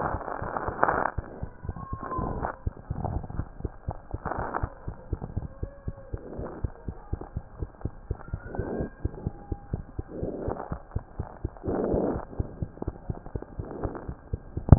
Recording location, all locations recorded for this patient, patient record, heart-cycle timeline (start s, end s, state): mitral valve (MV)
aortic valve (AV)+pulmonary valve (PV)+tricuspid valve (TV)+mitral valve (MV)
#Age: Child
#Sex: Female
#Height: 90.0 cm
#Weight: 12.4 kg
#Pregnancy status: False
#Murmur: Absent
#Murmur locations: nan
#Most audible location: nan
#Systolic murmur timing: nan
#Systolic murmur shape: nan
#Systolic murmur grading: nan
#Systolic murmur pitch: nan
#Systolic murmur quality: nan
#Diastolic murmur timing: nan
#Diastolic murmur shape: nan
#Diastolic murmur grading: nan
#Diastolic murmur pitch: nan
#Diastolic murmur quality: nan
#Outcome: Normal
#Campaign: 2015 screening campaign
0.00	5.84	unannotated
5.84	5.94	S1
5.94	6.11	systole
6.11	6.17	S2
6.17	6.37	diastole
6.37	6.45	S1
6.45	6.61	systole
6.61	6.69	S2
6.69	6.85	diastole
6.85	6.94	S1
6.94	7.09	systole
7.09	7.19	S2
7.19	7.33	diastole
7.33	7.44	S1
7.44	7.58	systole
7.58	7.69	S2
7.69	7.83	diastole
7.83	7.91	S1
7.91	8.07	systole
8.07	8.16	S2
8.16	8.31	diastole
8.31	8.39	S1
8.39	8.56	systole
8.56	8.64	S2
8.64	8.78	diastole
8.78	8.89	S1
8.89	9.00	systole
9.00	9.09	S2
9.09	9.23	diastole
9.23	9.34	S1
9.34	9.48	systole
9.48	9.56	S2
9.56	9.69	diastole
9.69	9.80	S1
9.80	14.78	unannotated